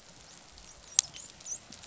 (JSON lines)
{"label": "biophony, dolphin", "recorder": "SoundTrap 500"}